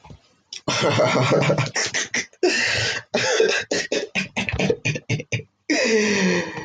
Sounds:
Laughter